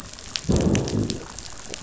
{"label": "biophony, growl", "recorder": "SoundTrap 500"}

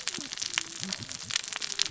{"label": "biophony, cascading saw", "recorder": "SoundTrap 600 or HydroMoth"}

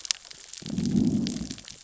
{"label": "biophony, growl", "recorder": "SoundTrap 600 or HydroMoth"}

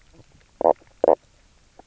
{"label": "biophony, knock croak", "recorder": "SoundTrap 300"}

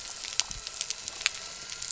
{"label": "anthrophony, boat engine", "recorder": "SoundTrap 300"}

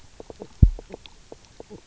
{"label": "biophony, knock croak", "recorder": "SoundTrap 300"}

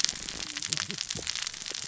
{"label": "biophony, cascading saw", "recorder": "SoundTrap 600 or HydroMoth"}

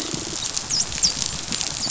{"label": "biophony, dolphin", "recorder": "SoundTrap 500"}
{"label": "biophony", "recorder": "SoundTrap 500"}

